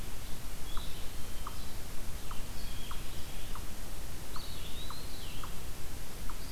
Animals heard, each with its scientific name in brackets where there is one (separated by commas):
Blue-headed Vireo (Vireo solitarius), unknown mammal, Red-eyed Vireo (Vireo olivaceus), Eastern Wood-Pewee (Contopus virens), Blue Jay (Cyanocitta cristata)